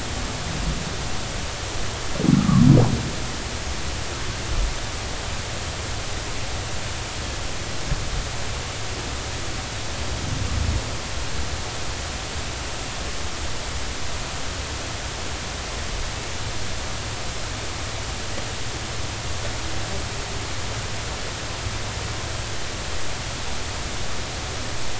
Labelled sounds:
2.4	2.7	humpback whale, 1.0 to 1.4 kHz

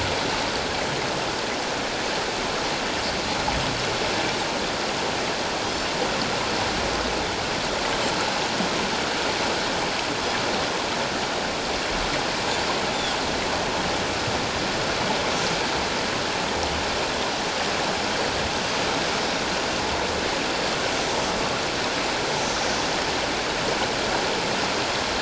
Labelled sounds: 5.6	5.9	Pacific white-sided dolphin, 4.8 to 5.5 kHz
18.5	18.8	Pacific white-sided dolphin, 6.0 to 6.2 kHz

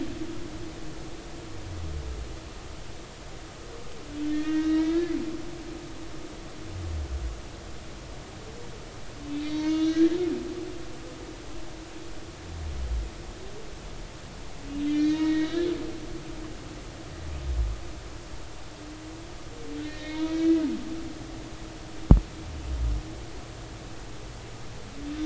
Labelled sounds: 4.3	5.1	humpback whale, 1.5 to 3.9 kHz
9.4	10.2	humpback whale, 0.86 to 4.5 kHz
14.9	15.7	humpback whale, 1.5 to 4.2 kHz
19.8	20.6	humpback whale, 0.90 to 3.9 kHz

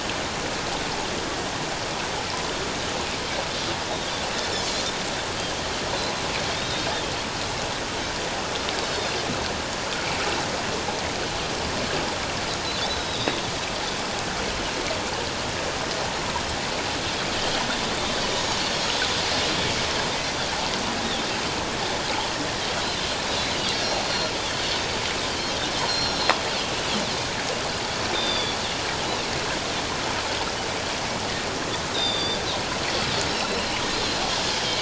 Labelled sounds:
6.5	6.9	Pacific white-sided dolphin, 3.3 to 3.9 kHz
13.1	13.4	Pacific white-sided dolphin, 3.5 to 3.9 kHz
17.4	17.6	Pacific white-sided dolphin, 2.9 to 3.3 kHz
18.9	19.2	Pacific white-sided dolphin, 3.4 to 3.6 kHz
23.7	24.3	Pacific white-sided dolphin, 4.1 to 4.7 kHz
25.3	26.3	Pacific white-sided dolphin, 3.0 to 5.7 kHz
28.1	28.6	Pacific white-sided dolphin, 3.3 to 4.9 kHz
31.9	32.4	Pacific white-sided dolphin, 3.4 to 4.9 kHz
33.3	34.2	Pacific white-sided dolphin, 3.9 to 4.2 kHz

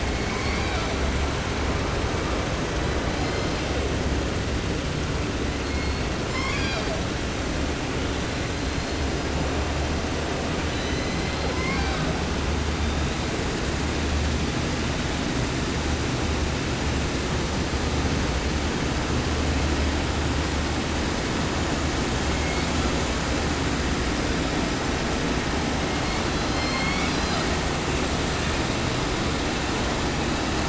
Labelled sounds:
0.0	1.0	killer whale, southern resident, 0.30 to 7.7 kHz
2.7	3.9	killer whale, 1.1 to 7.2 kHz
5.6	7.1	killer whale, 0.38 to 8.0 kHz
8.1	9.1	killer whale, 3.6 to 4.6 kHz
10.6	12.1	killer whale, southern resident, J pod, call S01, 0.30 to 7.2 kHz
12.6	13.4	killer whale, 2.8 to 5.5 kHz
22.1	23.0	killer whale, 1.2 to 6.9 kHz
25.8	27.6	killer whale, southern resident, J pod, call S01, 0.30 to 8.0 kHz

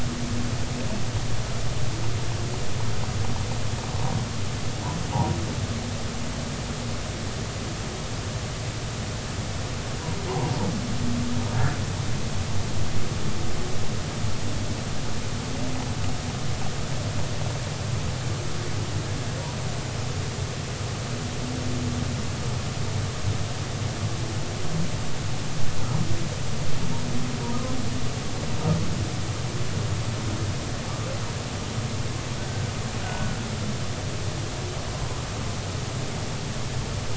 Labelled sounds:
5.1	5.4	humpback whale, 0.80 to 0.99 kHz
32.4	33.4	humpback whale, 1.4 to 1.6 kHz

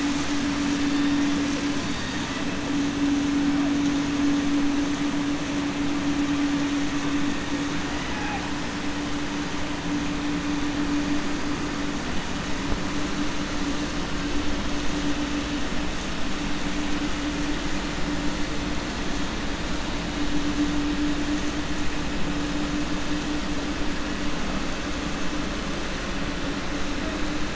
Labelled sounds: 7.9	8.5	killer whale, 0.76 to 3.0 kHz

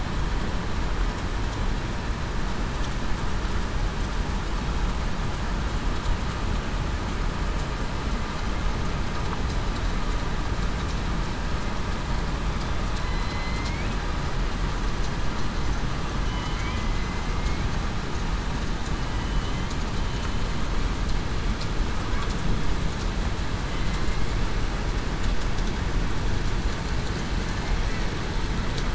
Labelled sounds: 13.0	13.9	killer whale, southern resident, 2.0 to 4.2 kHz
16.3	16.8	killer whale, southern resident, 2.9 to 3.2 kHz
19.1	19.7	killer whale, southern resident, 2.9 to 3.2 kHz

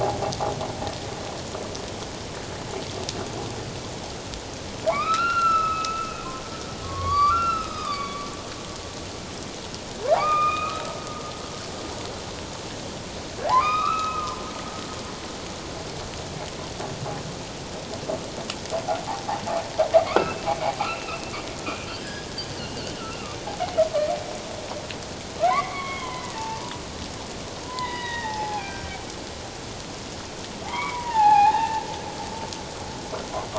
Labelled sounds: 4.9	6.2	humpback whale, 0.81 to 4.2 kHz
6.8	8.2	humpback whale, 1.0 to 4.8 kHz
10.2	10.8	humpback whale, 1.1 to 3.8 kHz
13.5	14.3	humpback whale, 0.78 to 4.0 kHz
20.1	21.3	humpback whale, 1.0 to 2.8 kHz
21.8	22.3	humpback whale, 1.5 to 5.1 kHz
22.5	23.4	humpback whale, 1.1 to 3.1 kHz
25.5	26.8	humpback whale, 0.81 to 3.4 kHz
27.6	29.0	humpback whale, 0.78 to 5.2 kHz
30.6	31.8	humpback whale, 0.78 to 3.9 kHz

